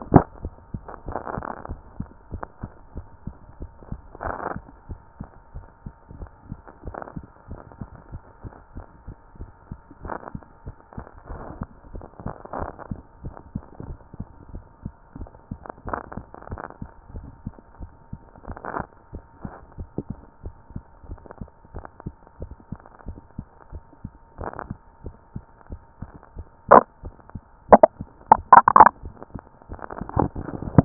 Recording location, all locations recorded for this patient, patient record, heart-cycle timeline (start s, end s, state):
tricuspid valve (TV)
aortic valve (AV)+pulmonary valve (PV)+tricuspid valve (TV)+mitral valve (MV)
#Age: nan
#Sex: Female
#Height: nan
#Weight: nan
#Pregnancy status: True
#Murmur: Absent
#Murmur locations: nan
#Most audible location: nan
#Systolic murmur timing: nan
#Systolic murmur shape: nan
#Systolic murmur grading: nan
#Systolic murmur pitch: nan
#Systolic murmur quality: nan
#Diastolic murmur timing: nan
#Diastolic murmur shape: nan
#Diastolic murmur grading: nan
#Diastolic murmur pitch: nan
#Diastolic murmur quality: nan
#Outcome: Abnormal
#Campaign: 2014 screening campaign
0.00	0.10	systole
0.10	0.24	S2
0.24	0.42	diastole
0.42	0.54	S1
0.54	0.72	systole
0.72	0.86	S2
0.86	1.06	diastole
1.06	1.18	S1
1.18	1.34	systole
1.34	1.46	S2
1.46	1.68	diastole
1.68	1.82	S1
1.82	1.98	systole
1.98	2.08	S2
2.08	2.28	diastole
2.28	2.42	S1
2.42	2.62	systole
2.62	2.72	S2
2.72	2.96	diastole
2.96	3.06	S1
3.06	3.26	systole
3.26	3.36	S2
3.36	3.60	diastole
3.60	3.70	S1
3.70	3.90	systole
3.90	4.02	S2
4.02	4.22	diastole
4.22	4.36	S1
4.36	4.52	systole
4.52	4.64	S2
4.64	4.86	diastole
4.86	5.00	S1
5.00	5.20	systole
5.20	5.28	S2
5.28	5.54	diastole
5.54	5.66	S1
5.66	5.86	systole
5.86	5.94	S2
5.94	6.16	diastole
6.16	6.30	S1
6.30	6.48	systole
6.48	6.60	S2
6.60	6.82	diastole
6.82	6.96	S1
6.96	7.14	systole
7.14	7.24	S2
7.24	7.50	diastole
7.50	7.62	S1
7.62	7.80	systole
7.80	7.90	S2
7.90	8.10	diastole
8.10	8.22	S1
8.22	8.44	systole
8.44	8.54	S2
8.54	8.76	diastole
8.76	8.86	S1
8.86	9.08	systole
9.08	9.18	S2
9.18	9.40	diastole
9.40	9.50	S1
9.50	9.70	systole
9.70	9.80	S2
9.80	10.02	diastole
10.02	10.14	S1
10.14	10.34	systole
10.34	10.44	S2
10.44	10.66	diastole
10.66	10.76	S1
10.76	10.98	systole
10.98	11.06	S2
11.06	11.30	diastole
11.30	11.44	S1
11.44	11.60	systole
11.60	11.70	S2
11.70	11.92	diastole
11.92	12.04	S1
12.04	12.24	systole
12.24	12.36	S2
12.36	12.54	diastole
12.54	12.70	S1
12.70	12.90	systole
12.90	13.00	S2
13.00	13.22	diastole
13.22	13.34	S1
13.34	13.52	systole
13.52	13.64	S2
13.64	13.84	diastole
13.84	13.98	S1
13.98	14.18	systole
14.18	14.28	S2
14.28	14.50	diastole
14.50	14.64	S1
14.64	14.82	systole
14.82	14.92	S2
14.92	15.16	diastole
15.16	15.30	S1
15.30	15.52	systole
15.52	15.60	S2
15.60	15.86	diastole
15.86	16.02	S1
16.02	16.18	systole
16.18	16.28	S2
16.28	16.48	diastole
16.48	16.60	S1
16.60	16.82	systole
16.82	16.92	S2
16.92	17.12	diastole
17.12	17.30	S1
17.30	17.44	systole
17.44	17.54	S2
17.54	17.80	diastole
17.80	17.90	S1
17.90	18.12	systole
18.12	18.20	S2
18.20	18.46	diastole
18.46	18.58	S1
18.58	18.76	systole
18.76	18.88	S2
18.88	19.14	diastole
19.14	19.24	S1
19.24	19.44	systole
19.44	19.54	S2
19.54	19.76	diastole
19.76	19.88	S1
19.88	20.08	systole
20.08	20.20	S2
20.20	20.42	diastole
20.42	20.56	S1
20.56	20.76	systole
20.76	20.86	S2
20.86	21.10	diastole
21.10	21.20	S1
21.20	21.42	systole
21.42	21.50	S2
21.50	21.74	diastole
21.74	21.84	S1
21.84	22.04	systole
22.04	22.16	S2
22.16	22.40	diastole
22.40	22.52	S1
22.52	22.72	systole
22.72	22.82	S2
22.82	23.06	diastole
23.06	23.18	S1
23.18	23.38	systole
23.38	23.48	S2
23.48	23.72	diastole
23.72	23.84	S1
23.84	24.04	systole
24.04	24.12	S2
24.12	24.38	diastole
24.38	24.52	S1
24.52	24.68	systole
24.68	24.78	S2
24.78	25.04	diastole
25.04	25.14	S1
25.14	25.36	systole
25.36	25.46	S2
25.46	25.72	diastole
25.72	25.82	S1
25.82	26.02	systole
26.02	26.10	S2
26.10	26.36	diastole
26.36	26.48	S1
26.48	26.70	systole
26.70	26.86	S2
26.86	27.04	diastole
27.04	27.16	S1
27.16	27.36	systole
27.36	27.44	S2
27.44	27.70	diastole
27.70	27.82	S1
27.82	28.00	systole
28.00	28.08	S2
28.08	28.30	diastole
28.30	28.46	S1
28.46	28.72	systole
28.72	28.88	S2
28.88	29.06	diastole
29.06	29.14	S1
29.14	29.34	systole
29.34	29.44	S2
29.44	29.70	diastole
29.70	29.84	S1
29.84	30.14	systole
30.14	30.30	S2
30.30	30.48	diastole
30.48	30.60	S1
30.60	30.72	systole
30.72	30.85	S2